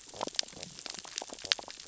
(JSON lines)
{"label": "biophony, sea urchins (Echinidae)", "recorder": "SoundTrap 600 or HydroMoth"}